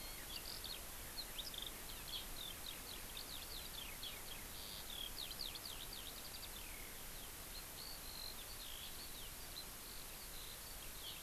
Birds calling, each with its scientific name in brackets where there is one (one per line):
Eurasian Skylark (Alauda arvensis)